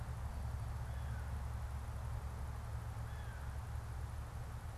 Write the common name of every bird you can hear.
American Crow